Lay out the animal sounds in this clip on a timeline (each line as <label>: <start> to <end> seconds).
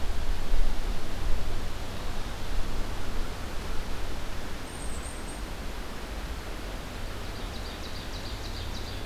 Black-capped Chickadee (Poecile atricapillus): 4.6 to 5.5 seconds
Ovenbird (Seiurus aurocapilla): 6.8 to 9.1 seconds